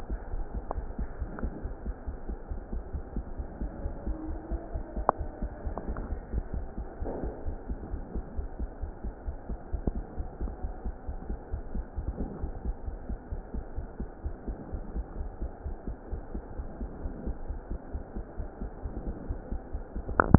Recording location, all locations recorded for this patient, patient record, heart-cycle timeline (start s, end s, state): pulmonary valve (PV)
aortic valve (AV)+pulmonary valve (PV)+tricuspid valve (TV)+mitral valve (MV)
#Age: Child
#Sex: Female
#Height: 123.0 cm
#Weight: 20.4 kg
#Pregnancy status: False
#Murmur: Absent
#Murmur locations: nan
#Most audible location: nan
#Systolic murmur timing: nan
#Systolic murmur shape: nan
#Systolic murmur grading: nan
#Systolic murmur pitch: nan
#Systolic murmur quality: nan
#Diastolic murmur timing: nan
#Diastolic murmur shape: nan
#Diastolic murmur grading: nan
#Diastolic murmur pitch: nan
#Diastolic murmur quality: nan
#Outcome: Abnormal
#Campaign: 2015 screening campaign
0.00	16.44	unannotated
16.44	16.57	diastole
16.57	16.66	S1
16.66	16.79	systole
16.79	16.90	S2
16.90	17.02	diastole
17.02	17.10	S1
17.10	17.26	systole
17.26	17.32	S2
17.32	17.49	diastole
17.49	17.58	S1
17.58	17.69	systole
17.69	17.78	S2
17.78	17.91	diastole
17.91	18.01	S1
18.01	18.15	systole
18.15	18.22	S2
18.22	18.38	diastole
18.38	18.47	S1
18.47	18.62	systole
18.62	18.70	S2
18.70	18.84	diastole
18.84	18.92	S1
18.92	19.05	systole
19.05	19.14	S2
19.14	19.29	diastole
19.29	19.35	S1
19.35	19.48	systole
19.48	19.61	S2
19.61	19.72	diastole
19.72	19.82	S1
19.82	19.94	systole
19.94	20.03	S2
20.03	20.38	unannotated